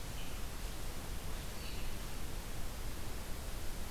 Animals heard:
forest ambience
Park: Marsh-Billings-Rockefeller National Historical Park